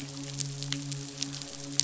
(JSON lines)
{"label": "biophony, midshipman", "recorder": "SoundTrap 500"}